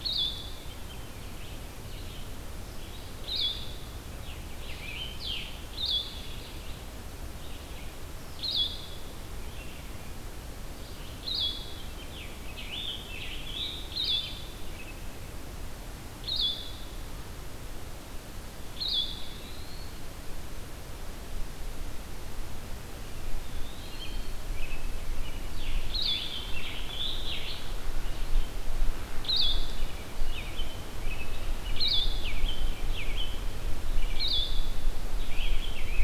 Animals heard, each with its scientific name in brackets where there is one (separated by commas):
Blue-headed Vireo (Vireo solitarius), American Robin (Turdus migratorius), Eastern Wood-Pewee (Contopus virens), Scarlet Tanager (Piranga olivacea)